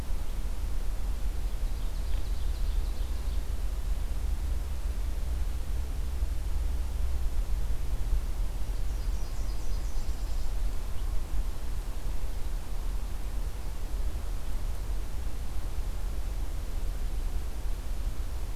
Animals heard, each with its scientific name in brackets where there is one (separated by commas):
Ovenbird (Seiurus aurocapilla), Nashville Warbler (Leiothlypis ruficapilla)